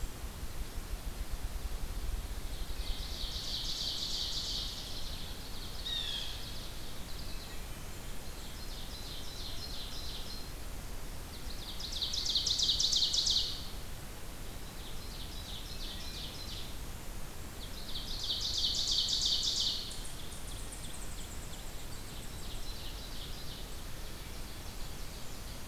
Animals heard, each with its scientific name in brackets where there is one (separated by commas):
Wood Thrush (Hylocichla mustelina), unknown mammal, Blue Jay (Cyanocitta cristata), Ovenbird (Seiurus aurocapilla), American Goldfinch (Spinus tristis)